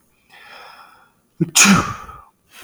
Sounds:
Sneeze